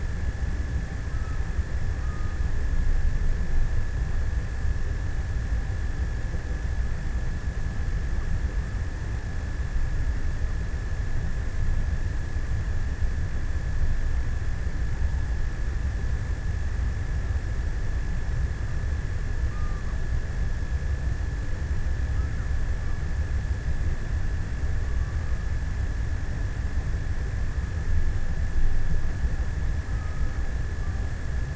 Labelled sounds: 0.0	3.6	killer whale, offshore, 0.75 to 1.8 kHz
18.8	20.6	killer whale, offshore, 0.54 to 1.6 kHz
29.4	31.3	killer whale, offshore, 0.75 to 1.8 kHz

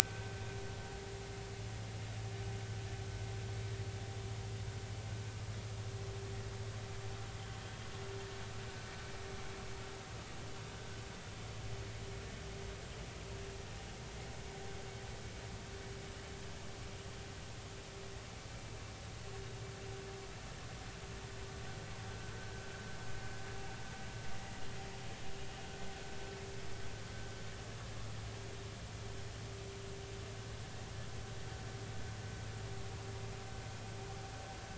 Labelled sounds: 1.0	1.3	vessel noise, 1.5 to 1.6 kHz

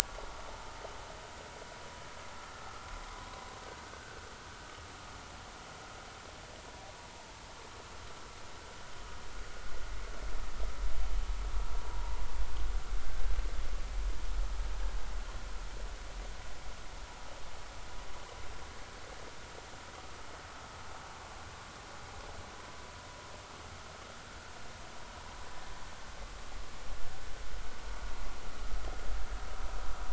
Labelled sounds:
3.9	4.2	vessel noise, 1.4 to 1.6 kHz
13.0	13.2	vessel noise, 1.5 to 1.6 kHz

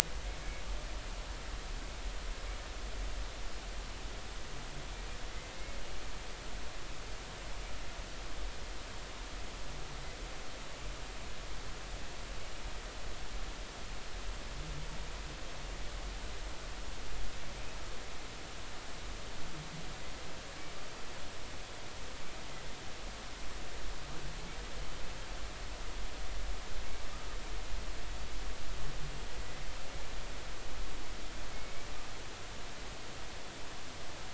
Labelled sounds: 31.5	31.9	humpback whale, 2.1 to 2.3 kHz

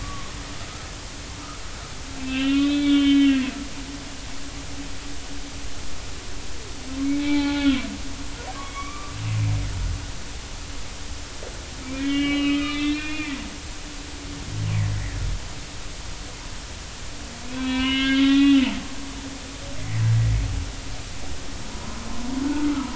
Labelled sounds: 0.0	0.3	humpback whale, 1.0 to 1.2 kHz
2.2	3.5	humpback whale, 1.3 to 4.1 kHz
7.1	7.8	humpback whale, 0.80 to 3.8 kHz
8.6	9.1	humpback whale, 1.1 to 3.4 kHz
11.8	13.4	humpback whale, 1.1 to 4.1 kHz
17.5	18.6	humpback whale, 0.93 to 4.1 kHz
19.8	20.0	humpback whale, 1.8 to 2.1 kHz
21.7	22.0	humpback whale, 0.90 to 1.1 kHz
22.4	22.7	humpback whale, 1.4 to 1.5 kHz

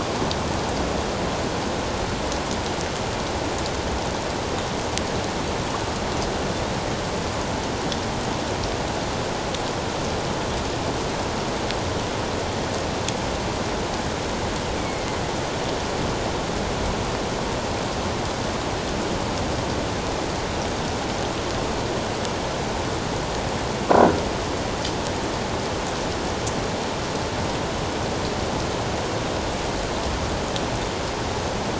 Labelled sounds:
14.8	15.2	killer whale, northern resident, A clan, AA subclan, A04 pod, 2.0 to 2.4 kHz

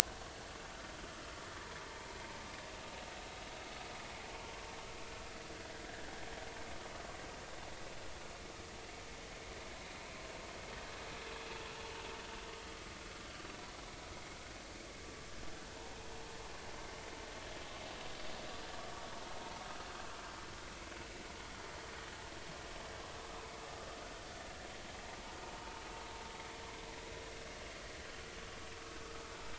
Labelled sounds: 5.9	6.1	vessel noise, 1.5 to 1.9 kHz

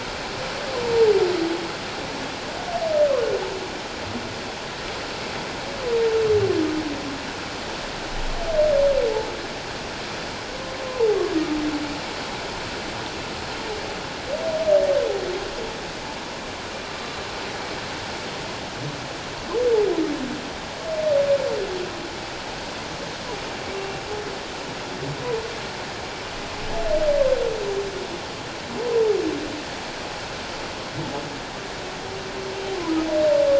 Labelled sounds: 10.9	11.2	humpback whale, 0.78 to 1.1 kHz
16.8	17.1	humpback whale, 1.2 to 1.3 kHz

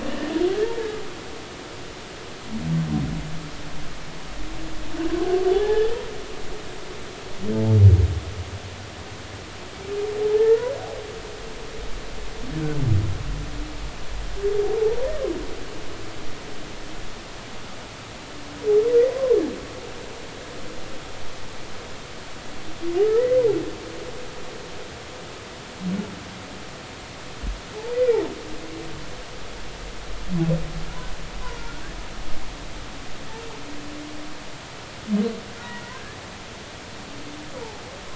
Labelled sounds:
5.5	5.9	humpback whale, 0.80 to 1.9 kHz
10.3	10.7	humpback whale, 0.80 to 2.0 kHz
14.8	15.1	humpback whale, 0.80 to 1.0 kHz
19.1	19.4	humpback whale, 0.96 to 1.2 kHz
23.1	23.4	humpback whale, 1.7 to 2.1 kHz
31.6	31.8	humpback whale, 1.3 to 1.5 kHz
35.6	36.2	humpback whale, 1.4 to 2.0 kHz
37.6	37.8	humpback whale, 0.80 to 0.99 kHz

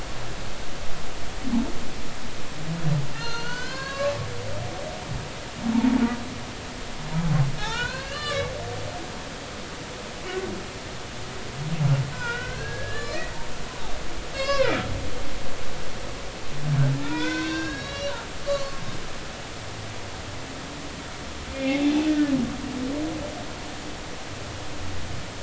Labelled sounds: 3.1	4.1	humpback whale, 0.99 to 7.1 kHz
5.7	6.0	humpback whale, 0.83 to 0.96 kHz
7.6	8.5	humpback whale, 0.80 to 7.3 kHz
12.1	13.2	humpback whale, 0.90 to 4.4 kHz
14.3	14.9	humpback whale, 0.86 to 5.6 kHz
16.9	18.2	humpback whale, 0.86 to 5.8 kHz
18.4	18.8	humpback whale, 1.0 to 4.6 kHz
21.5	22.3	humpback whale, 1.7 to 2.5 kHz

